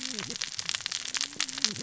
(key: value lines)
label: biophony, cascading saw
recorder: SoundTrap 600 or HydroMoth